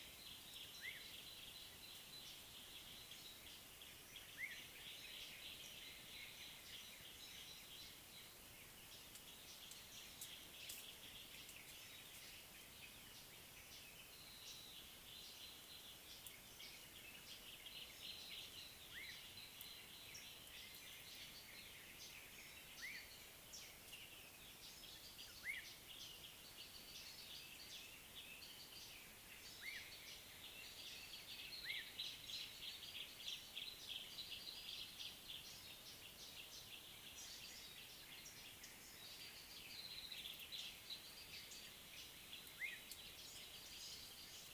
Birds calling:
Black-tailed Oriole (Oriolus percivali), Gray Apalis (Apalis cinerea)

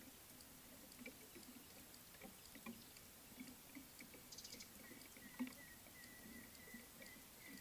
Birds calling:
African Gray Hornbill (Lophoceros nasutus), Beautiful Sunbird (Cinnyris pulchellus)

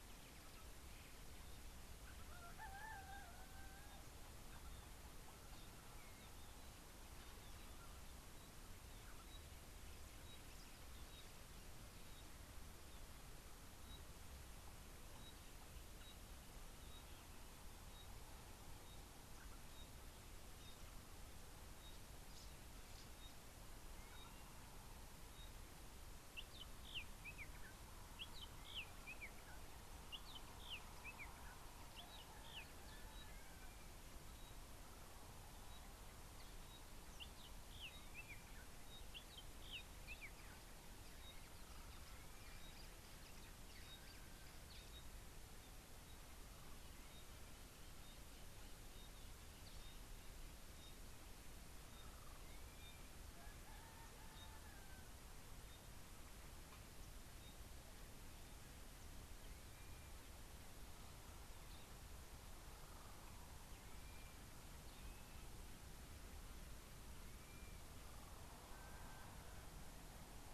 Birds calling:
Pygmy Batis (Batis perkeo), Blue-naped Mousebird (Urocolius macrourus), Spotted Morning-Thrush (Cichladusa guttata)

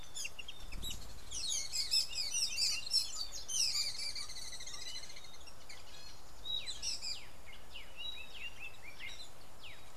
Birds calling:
Rufous Chatterer (Argya rubiginosa)

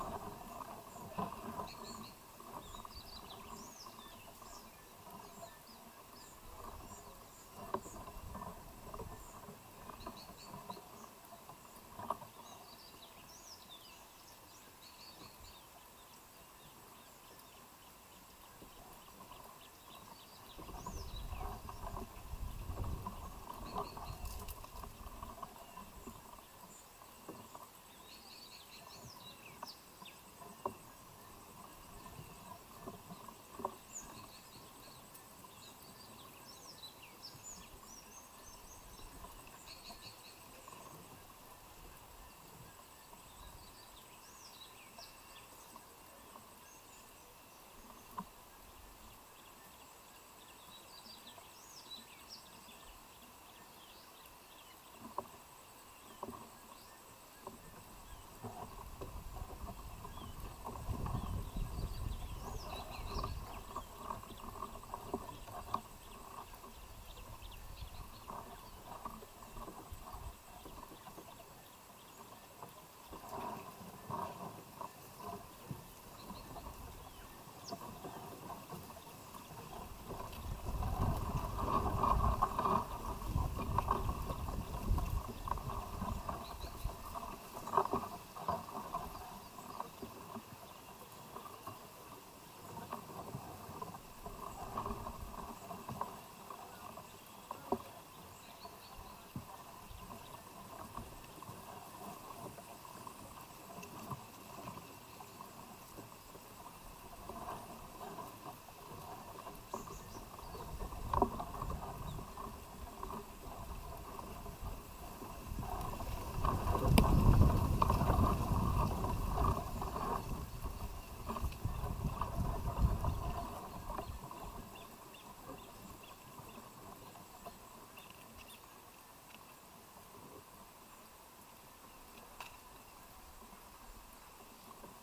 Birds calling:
Abyssinian Thrush (Turdus abyssinicus)

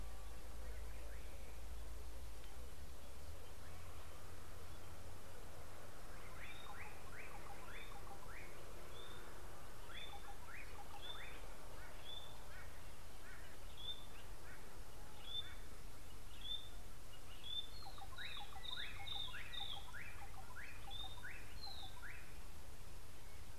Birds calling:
Slate-colored Boubou (Laniarius funebris), White-bellied Go-away-bird (Corythaixoides leucogaster), White-browed Robin-Chat (Cossypha heuglini)

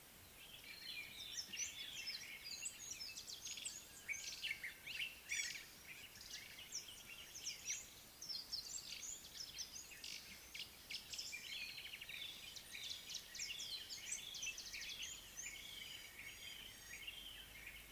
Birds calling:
Amethyst Sunbird (Chalcomitra amethystina), Common Bulbul (Pycnonotus barbatus), White-browed Robin-Chat (Cossypha heuglini), Gray-backed Camaroptera (Camaroptera brevicaudata)

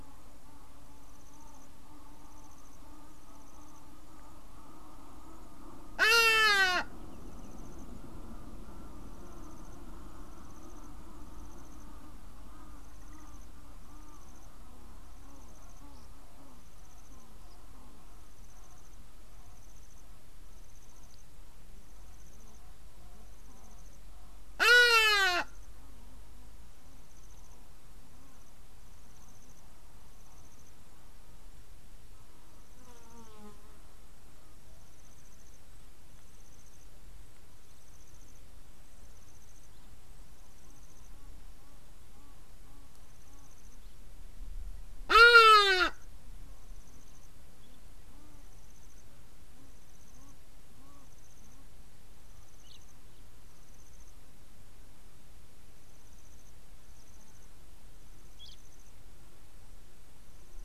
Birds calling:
Hadada Ibis (Bostrychia hagedash), Egyptian Goose (Alopochen aegyptiaca)

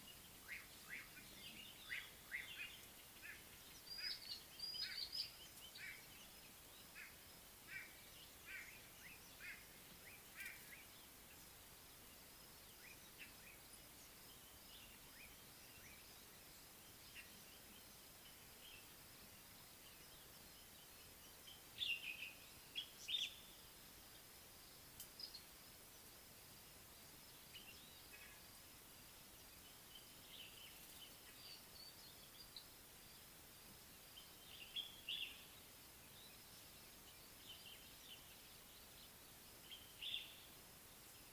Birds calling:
Common Bulbul (Pycnonotus barbatus), White-bellied Go-away-bird (Corythaixoides leucogaster), Slate-colored Boubou (Laniarius funebris), Little Bee-eater (Merops pusillus)

